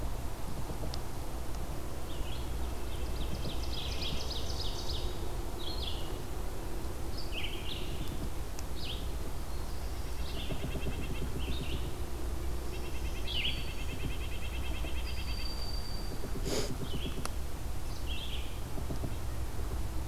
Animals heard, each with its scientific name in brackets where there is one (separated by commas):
Ovenbird (Seiurus aurocapilla), Red-eyed Vireo (Vireo olivaceus), Red-breasted Nuthatch (Sitta canadensis), Broad-winged Hawk (Buteo platypterus)